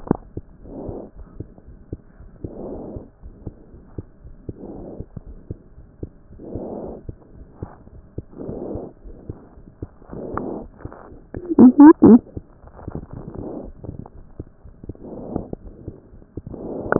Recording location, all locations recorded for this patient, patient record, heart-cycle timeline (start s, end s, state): aortic valve (AV)
aortic valve (AV)+pulmonary valve (PV)+tricuspid valve (TV)+mitral valve (MV)
#Age: Child
#Sex: Male
#Height: nan
#Weight: nan
#Pregnancy status: False
#Murmur: Present
#Murmur locations: aortic valve (AV)+mitral valve (MV)+pulmonary valve (PV)+tricuspid valve (TV)
#Most audible location: tricuspid valve (TV)
#Systolic murmur timing: Holosystolic
#Systolic murmur shape: Plateau
#Systolic murmur grading: II/VI
#Systolic murmur pitch: Low
#Systolic murmur quality: Blowing
#Diastolic murmur timing: nan
#Diastolic murmur shape: nan
#Diastolic murmur grading: nan
#Diastolic murmur pitch: nan
#Diastolic murmur quality: nan
#Outcome: Normal
#Campaign: 2014 screening campaign
0.00	3.13	unannotated
3.13	3.24	diastole
3.24	3.32	S1
3.32	3.44	systole
3.44	3.54	S2
3.54	3.74	diastole
3.74	3.82	S1
3.82	3.96	systole
3.96	4.06	S2
4.06	4.24	diastole
4.24	4.34	S1
4.34	4.48	systole
4.48	4.56	S2
4.56	4.76	diastole
4.76	4.88	S1
4.88	4.98	systole
4.98	5.04	S2
5.04	5.26	diastole
5.26	5.36	S1
5.36	5.50	systole
5.50	5.58	S2
5.58	5.78	diastole
5.78	5.86	S1
5.86	6.02	systole
6.02	6.10	S2
6.10	6.31	diastole
6.31	16.99	unannotated